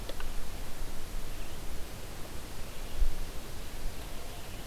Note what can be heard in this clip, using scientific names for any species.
forest ambience